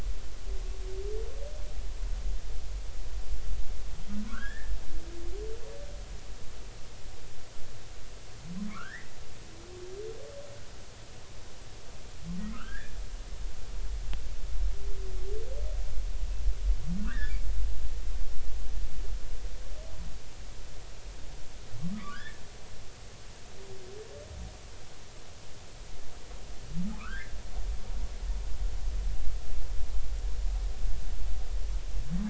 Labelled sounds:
4.3	4.7	humpback whale, 0.99 to 1.9 kHz
8.7	9.1	humpback whale, 1.0 to 2.0 kHz
12.4	13.0	humpback whale, 1.2 to 2.0 kHz
17.0	17.4	humpback whale, 1.1 to 2.0 kHz
21.8	22.4	humpback whale, 1.0 to 1.9 kHz
27.0	27.3	humpback whale, 1.0 to 1.9 kHz

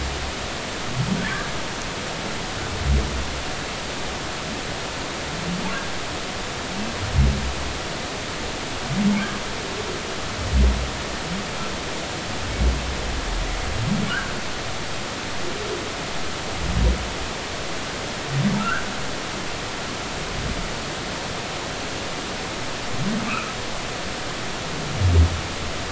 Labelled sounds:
14.1	14.4	humpback whale, 1.3 to 1.7 kHz
18.6	18.9	humpback whale, 1.2 to 1.7 kHz
23.3	23.5	humpback whale, 1.2 to 1.4 kHz

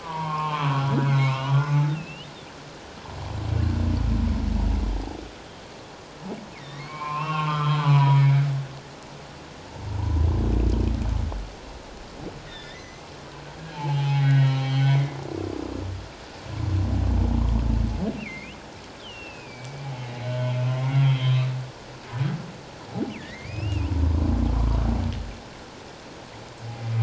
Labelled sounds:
0.0	2.3	humpback whale, 0.84 to 4.1 kHz
6.5	8.5	humpback whale, 0.84 to 3.4 kHz
12.5	13.1	humpback whale, 1.7 to 6.4 kHz
13.7	15.2	humpback whale, 0.78 to 4.2 kHz
18.2	21.5	humpback whale, 0.88 to 4.1 kHz
23.1	23.9	humpback whale, 1.7 to 3.1 kHz

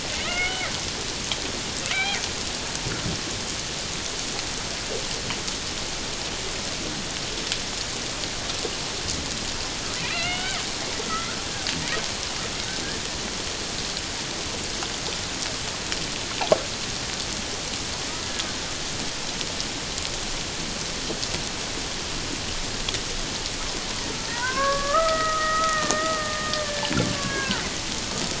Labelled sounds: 0.2	0.7	killer whale, Bigg's (transient), 1.2 to 3.0 kHz
1.9	2.2	killer whale, Bigg's (transient), 0.78 to 2.5 kHz
10.0	10.6	killer whale, Bigg's (transient), 1.2 to 3.9 kHz
11.1	11.4	killer whale, Bigg's (transient), 1.2 to 2.2 kHz
24.3	27.7	killer whale, Bigg's (transient), 0.88 to 2.1 kHz

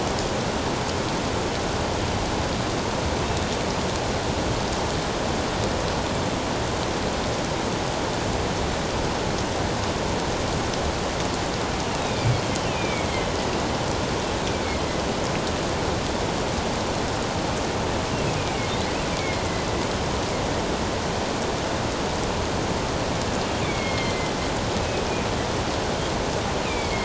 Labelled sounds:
12.0	13.1	killer whale, northern resident, A clan, AA subclan, A04 pod, 2.2 to 3.9 kHz
14.5	14.8	killer whale, northern resident, A clan, AA subclan, A04 pod, 2.1 to 2.4 kHz
18.4	18.7	killer whale, northern resident, A clan, AA subclan, A04 pod, 2.1 to 2.5 kHz
19.1	19.4	killer whale, northern resident, A clan, AA subclan, A04 pod, 2.1 to 2.4 kHz
23.6	25.1	killer whale, northern resident, A clan, AA subclan, A04 pod, 2.0 to 4.3 kHz

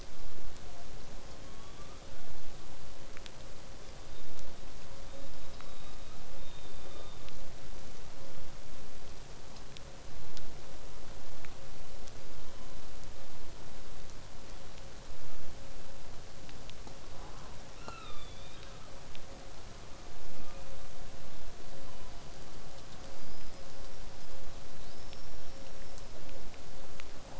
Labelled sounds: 3.7	4.7	killer whale, southern resident, 3.4 to 5.1 kHz
7.7	8.1	killer whale, southern resident, whistle, 5.6 to 6.3 kHz
17.7	19.1	killer whale, southern resident, 0.35 to 5.8 kHz
20.2	20.9	killer whale, southern resident, call S16, 1.0 to 2.6 kHz
21.6	22.5	killer whale, southern resident, 2.9 to 4.8 kHz
23.1	24.3	killer whale, southern resident, whistle, 4.6 to 5.8 kHz
24.8	26.2	killer whale, southern resident, 3.4 to 5.6 kHz

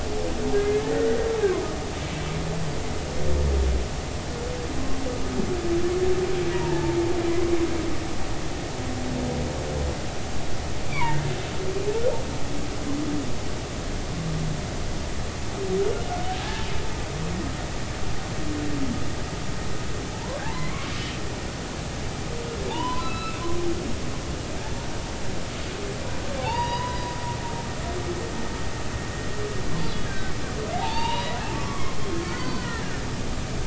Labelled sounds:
0.5	1.2	humpback whale, 1.3 to 2.2 kHz
6.5	7.0	humpback whale, 0.83 to 0.99 kHz
10.9	11.3	humpback whale, 0.86 to 2.5 kHz
16.4	16.7	humpback whale, 0.80 to 1.8 kHz
20.4	20.9	humpback whale, 0.80 to 2.3 kHz
22.7	23.4	humpback whale, 0.80 to 4.0 kHz
26.4	27.2	humpback whale, 0.80 to 5.0 kHz
30.0	30.3	humpback whale, 1.5 to 1.7 kHz
30.7	33.0	humpback whale, 0.80 to 4.7 kHz

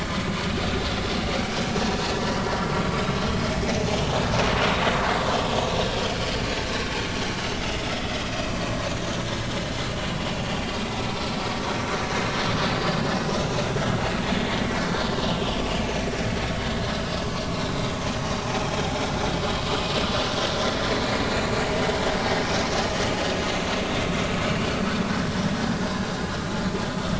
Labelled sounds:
7.9	8.2	vessel noise, 3.3 to 3.5 kHz
9.3	9.5	vessel noise, 5.2 to 5.5 kHz
12.7	13.0	vessel noise, 4.6 to 5.0 kHz
17.5	17.8	vessel noise, 3.8 to 4.0 kHz

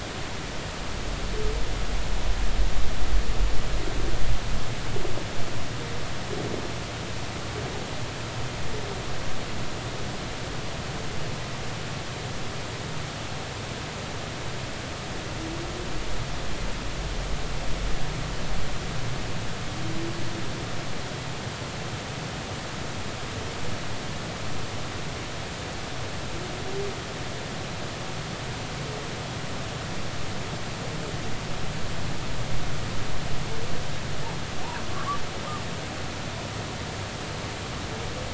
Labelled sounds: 34.9	35.2	humpback whale, 1.0 to 1.4 kHz

